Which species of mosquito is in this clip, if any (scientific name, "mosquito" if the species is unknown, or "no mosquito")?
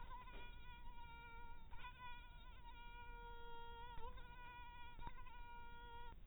mosquito